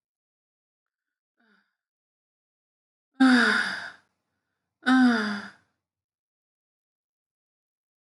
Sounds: Sigh